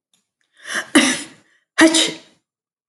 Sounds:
Sneeze